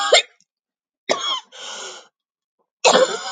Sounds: Laughter